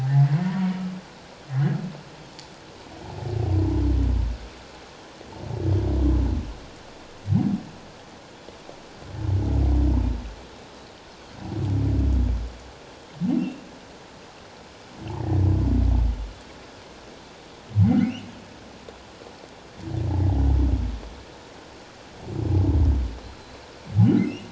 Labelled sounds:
13.4	13.6	humpback whale, 2.6 to 2.9 kHz
17.8	18.1	humpback whale, 2.0 to 2.2 kHz
24.2	24.5	humpback whale, 2.5 to 3.0 kHz

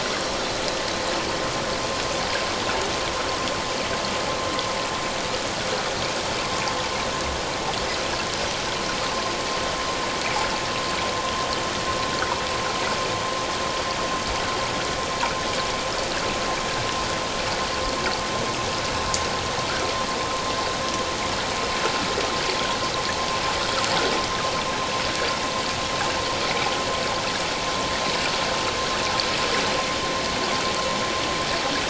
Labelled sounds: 0.0	0.4	Pacific white-sided dolphin, 5.4 to 5.7 kHz

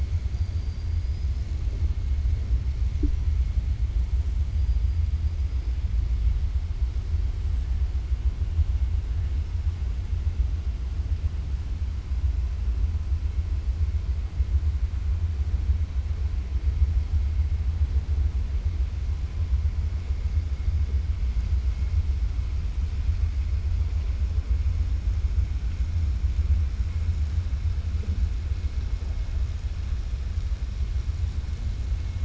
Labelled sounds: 0.2	1.5	killer whale, 4.2 to 5.7 kHz

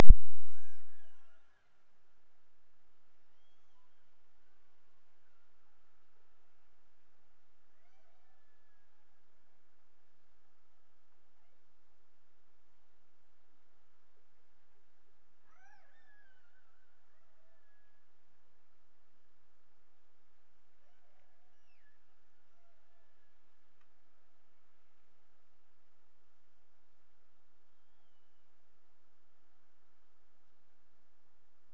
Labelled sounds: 0.4	1.8	killer whale, Bigg's (transient), Gulf of Alaska transient, 0.39 to 6.3 kHz
7.7	9.4	killer whale, Bigg's (transient), Gulf of Alaska transient, 0.44 to 6.4 kHz
15.3	18.3	killer whale, Bigg's (transient), Gulf of Alaska transient, 0.41 to 6.1 kHz
20.7	22.1	killer whale, Bigg's (transient), Gulf of Alaska transient, 0.36 to 5.9 kHz
22.3	23.6	killer whale, Bigg's (transient), Gulf of Alaska transient, 0.44 to 2.0 kHz

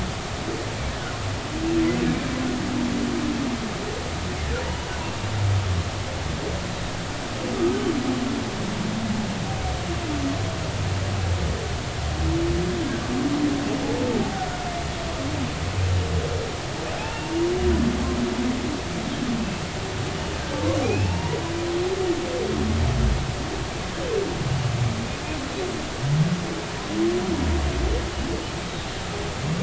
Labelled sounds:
17.0	17.3	humpback whale, 2.5 to 2.8 kHz
20.8	21.4	humpback whale, 0.83 to 2.9 kHz

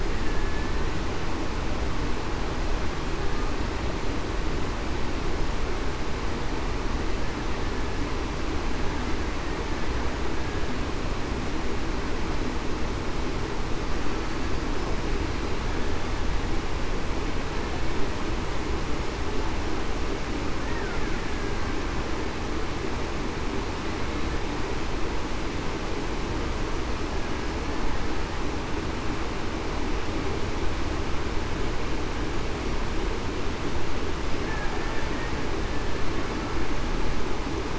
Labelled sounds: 0.2	0.7	killer whale, Bigg's (transient), 1.7 to 1.8 kHz

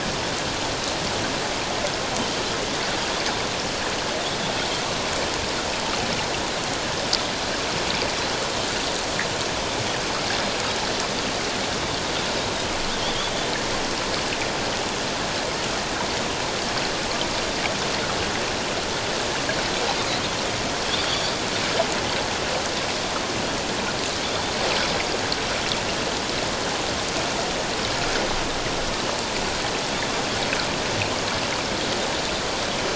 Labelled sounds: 21.0	21.3	Pacific white-sided dolphin, 3.2 to 3.6 kHz

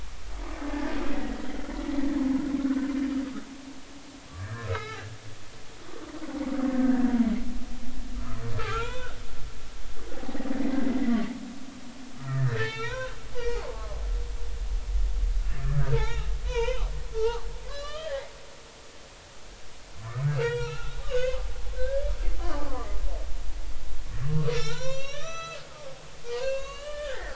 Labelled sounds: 2.6	2.9	humpback whale, 1.3 to 1.6 kHz
4.4	5.1	humpback whale, 0.80 to 2.7 kHz
6.8	7.1	humpback whale, 1.5 to 1.8 kHz
8.6	9.2	humpback whale, 0.86 to 3.1 kHz
10.2	10.5	humpback whale, 0.80 to 0.86 kHz
10.8	11.2	humpback whale, 1.9 to 2.2 kHz
12.1	14.0	humpback whale, 0.80 to 5.9 kHz
15.5	18.3	humpback whale, 0.80 to 5.4 kHz
20.3	21.4	humpback whale, 0.83 to 5.8 kHz
21.8	22.9	humpback whale, 0.96 to 1.8 kHz
24.5	25.6	humpback whale, 0.86 to 7.3 kHz
26.4	27.3	humpback whale, 0.99 to 6.9 kHz

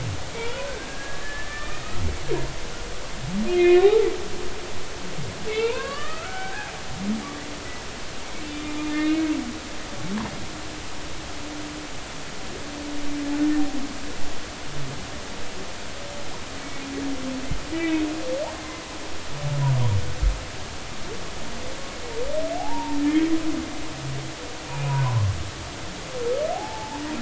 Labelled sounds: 0.9	1.9	humpback whale, 1.2 to 1.9 kHz
3.5	4.1	humpback whale, 0.80 to 2.6 kHz
5.5	6.7	humpback whale, 0.80 to 2.9 kHz
8.9	9.2	humpback whale, 2.0 to 2.3 kHz
16.6	16.9	humpback whale, 2.1 to 2.3 kHz
17.7	18.1	humpback whale, 1.9 to 2.7 kHz
22.6	23.3	humpback whale, 0.80 to 2.0 kHz
24.7	25.3	humpback whale, 0.90 to 2.6 kHz
26.5	27.0	humpback whale, 0.80 to 0.99 kHz

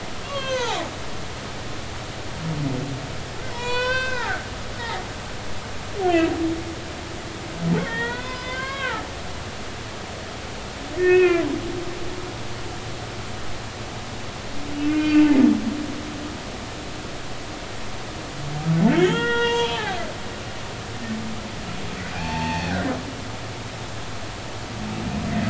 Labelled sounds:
0.2	0.9	humpback whale, 0.80 to 4.5 kHz
3.5	5.1	humpback whale, 0.80 to 7.6 kHz
6.0	6.3	humpback whale, 1.6 to 1.8 kHz
7.8	9.1	humpback whale, 0.80 to 5.2 kHz
11.0	11.4	humpback whale, 1.3 to 2.7 kHz
14.9	15.4	humpback whale, 1.4 to 3.2 kHz
18.9	19.9	humpback whale, 0.83 to 3.8 kHz
20.7	21.0	humpback whale, 0.80 to 0.96 kHz
22.1	22.9	humpback whale, 0.80 to 4.6 kHz

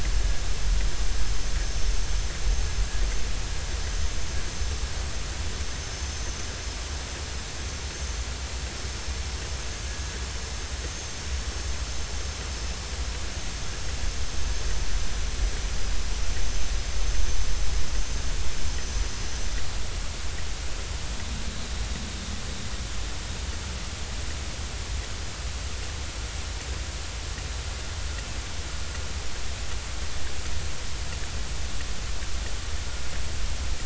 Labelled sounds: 16.9	17.1	vessel noise, 6.1 to 6.3 kHz

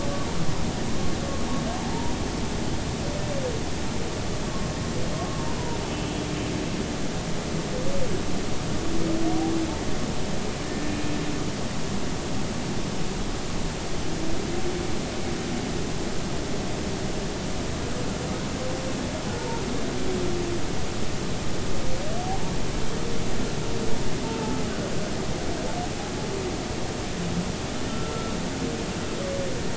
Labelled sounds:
1.8	2.1	humpback whale, 0.83 to 0.99 kHz
5.3	6.1	humpback whale, 0.90 to 3.1 kHz
10.6	11.0	humpback whale, 1.7 to 1.8 kHz
19.3	19.6	humpback whale, 0.83 to 0.99 kHz
27.9	28.3	humpback whale, 1.3 to 1.5 kHz

